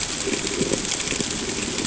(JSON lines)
{"label": "ambient", "recorder": "HydroMoth"}